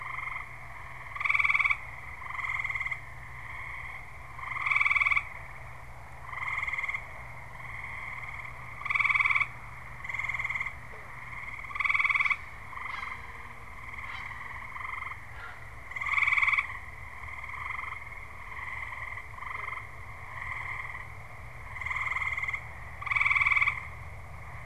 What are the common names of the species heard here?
Great Blue Heron